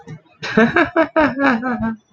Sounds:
Laughter